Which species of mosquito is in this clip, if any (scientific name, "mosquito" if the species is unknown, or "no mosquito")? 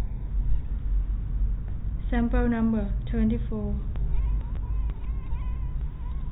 no mosquito